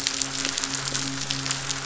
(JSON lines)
{"label": "biophony, midshipman", "recorder": "SoundTrap 500"}